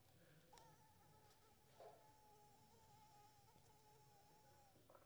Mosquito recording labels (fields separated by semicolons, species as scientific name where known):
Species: Anopheles squamosus; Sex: female; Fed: unfed; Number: one; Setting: cup